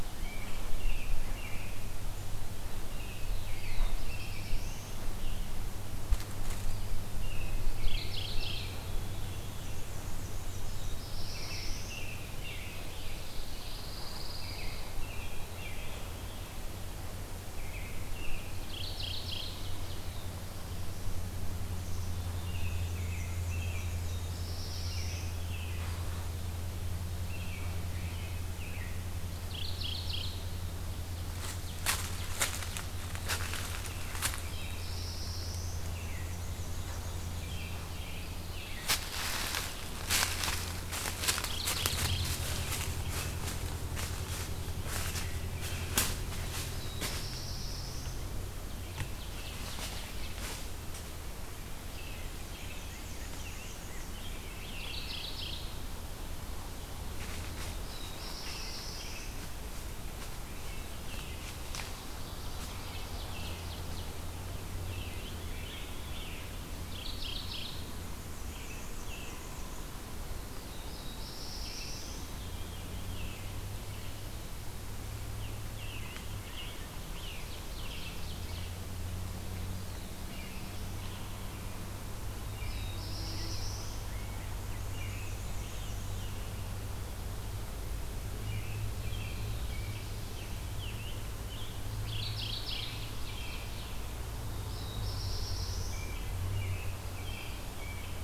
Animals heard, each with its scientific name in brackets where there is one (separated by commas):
Ovenbird (Seiurus aurocapilla), Black-throated Blue Warbler (Setophaga caerulescens), American Robin (Turdus migratorius), Black-and-white Warbler (Mniotilta varia), Pine Warbler (Setophaga pinus), Veery (Catharus fuscescens), Scarlet Tanager (Piranga olivacea), Mourning Warbler (Geothlypis philadelphia)